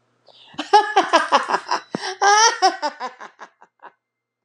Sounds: Laughter